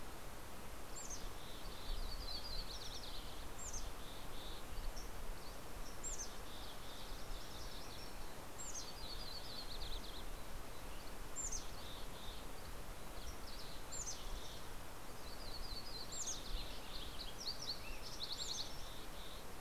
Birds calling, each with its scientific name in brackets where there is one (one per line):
Dusky Flycatcher (Empidonax oberholseri)
Mountain Chickadee (Poecile gambeli)
Yellow-rumped Warbler (Setophaga coronata)